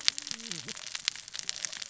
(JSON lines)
{"label": "biophony, cascading saw", "recorder": "SoundTrap 600 or HydroMoth"}